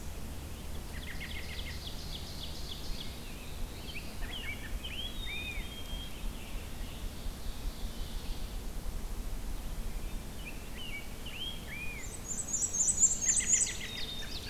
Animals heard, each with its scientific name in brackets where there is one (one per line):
Scarlet Tanager (Piranga olivacea)
Black-throated Blue Warbler (Setophaga caerulescens)
Ovenbird (Seiurus aurocapilla)
Black-capped Chickadee (Poecile atricapillus)
Black-and-white Warbler (Mniotilta varia)
Rose-breasted Grosbeak (Pheucticus ludovicianus)
American Robin (Turdus migratorius)